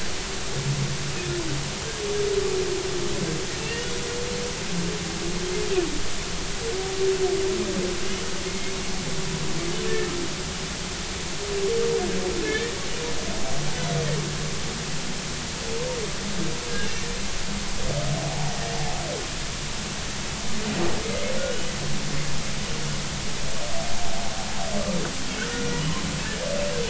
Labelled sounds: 3.6	3.9	humpback whale, 2.7 to 2.9 kHz
12.4	12.8	humpback whale, 1.7 to 2.4 kHz
18.3	18.5	humpback whale, 0.80 to 0.96 kHz
25.4	25.8	humpback whale, 1.3 to 1.7 kHz

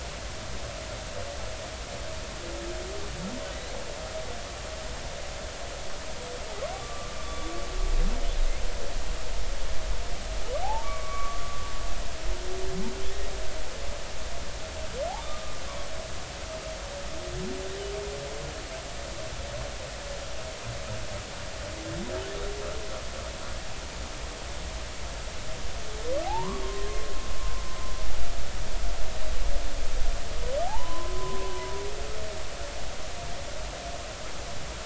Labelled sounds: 6.7	7.5	humpback whale, 1.1 to 3.5 kHz
10.6	11.4	humpback whale, 0.80 to 2.4 kHz
15.2	15.5	humpback whale, 1.1 to 1.3 kHz
26.2	27.0	humpback whale, 0.80 to 1.2 kHz
30.7	31.4	humpback whale, 0.80 to 1.1 kHz

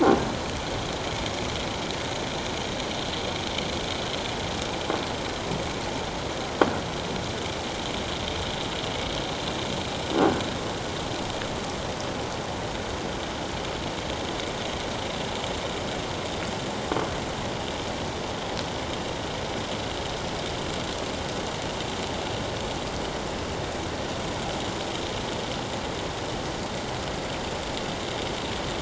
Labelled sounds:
10.1	10.4	croaking sound likely from a nearby submerged object, 1.4 to 1.6 kHz

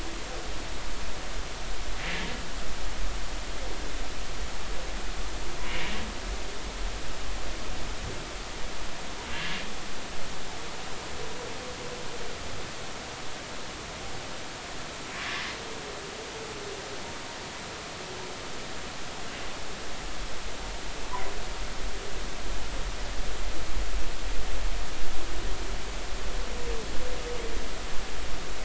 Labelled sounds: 5.7	5.9	humpback whale, 2.1 to 2.4 kHz

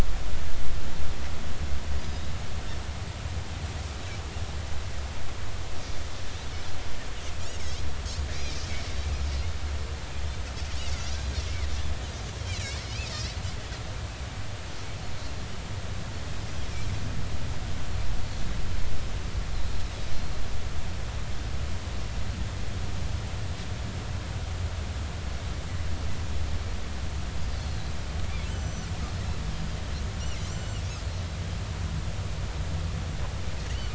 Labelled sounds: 2.0	2.3	Pacific white-sided dolphin, 3.7 to 4.0 kHz
7.5	8.6	Pacific white-sided dolphin, 2.1 to 6.9 kHz
13.1	13.4	Pacific white-sided dolphin, 4.1 to 4.9 kHz
27.5	28.9	Pacific white-sided dolphin, 4.1 to 6.2 kHz
29.5	30.5	Pacific white-sided dolphin, 4.7 to 7.5 kHz

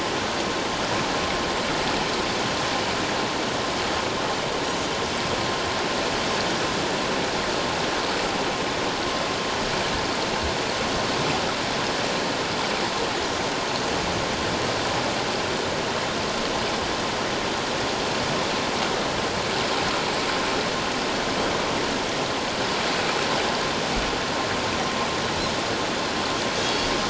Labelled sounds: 26.6	26.9	Pacific white-sided dolphin, 3.2 to 3.4 kHz

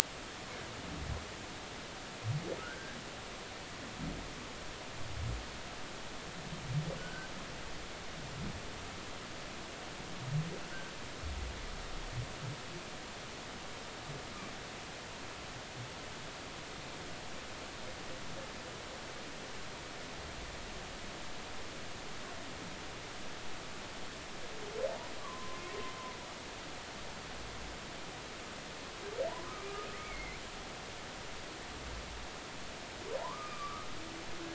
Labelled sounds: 2.6	3.0	humpback whale, 1.2 to 1.7 kHz
7.0	7.3	humpback whale, 1.4 to 1.7 kHz
25.2	25.6	humpback whale, 0.96 to 1.2 kHz
29.3	30.4	humpback whale, 0.90 to 2.5 kHz
33.2	33.9	humpback whale, 0.80 to 2.5 kHz

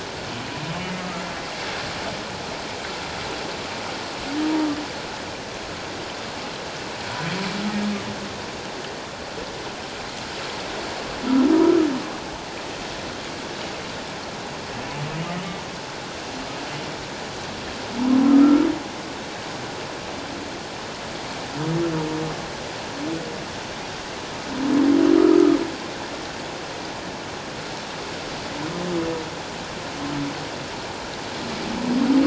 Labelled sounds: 18.2	18.7	humpback whale, 1.2 to 1.4 kHz

